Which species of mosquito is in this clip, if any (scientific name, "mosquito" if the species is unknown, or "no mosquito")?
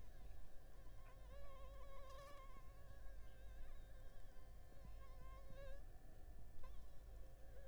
Anopheles funestus s.l.